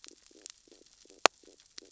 {"label": "biophony, stridulation", "recorder": "SoundTrap 600 or HydroMoth"}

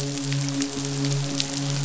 {"label": "biophony, midshipman", "recorder": "SoundTrap 500"}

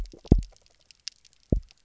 {"label": "biophony, double pulse", "recorder": "SoundTrap 300"}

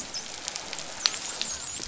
{"label": "biophony, dolphin", "recorder": "SoundTrap 500"}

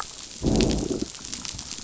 {"label": "biophony, growl", "recorder": "SoundTrap 500"}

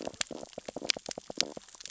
{"label": "biophony, stridulation", "recorder": "SoundTrap 600 or HydroMoth"}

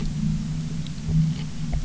{"label": "anthrophony, boat engine", "recorder": "SoundTrap 300"}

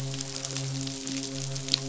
{"label": "biophony, midshipman", "recorder": "SoundTrap 500"}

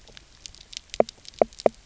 {"label": "biophony, knock croak", "recorder": "SoundTrap 300"}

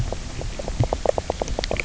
{"label": "biophony, knock croak", "recorder": "SoundTrap 300"}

